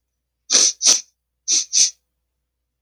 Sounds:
Sniff